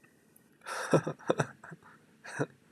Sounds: Laughter